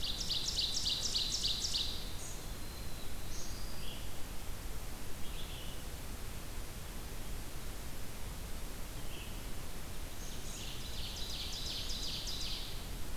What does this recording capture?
Ovenbird, Red-eyed Vireo, Black-throated Blue Warbler